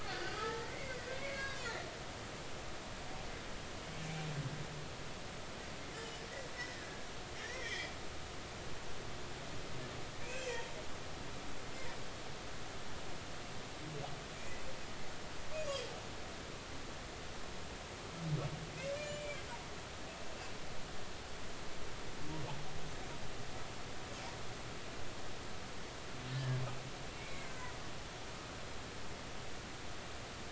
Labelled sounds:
0.0	1.9	humpback whale, 0.80 to 5.0 kHz
6.5	6.9	humpback whale, 1.6 to 2.0 kHz
7.4	7.9	humpback whale, 1.7 to 3.6 kHz
10.2	10.7	humpback whale, 2.3 to 3.3 kHz
15.7	15.9	humpback whale, 3.1 to 3.4 kHz
19.0	19.4	humpback whale, 2.2 to 3.0 kHz
27.2	27.7	humpback whale, 1.5 to 2.5 kHz

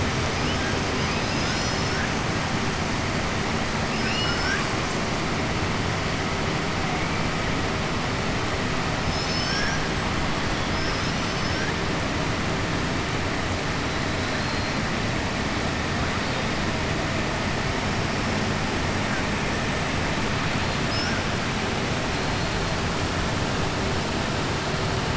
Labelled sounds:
3.9	4.7	killer whale, 1.2 to 7.8 kHz
10.6	11.7	killer whale, 4.3 to 6.3 kHz

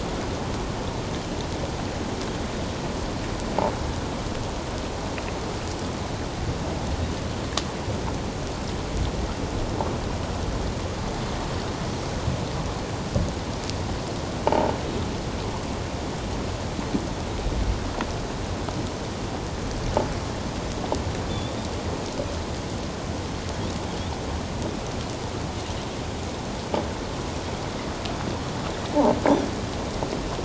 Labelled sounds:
14.5	14.7	croaking sound likely from a nearby submerged object, 0.78 to 0.97 kHz
21.3	21.5	Pacific white-sided dolphin, 3.4 to 3.7 kHz

